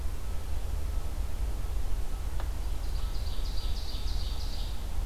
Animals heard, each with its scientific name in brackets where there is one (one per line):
Ovenbird (Seiurus aurocapilla)